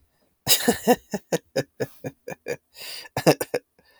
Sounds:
Laughter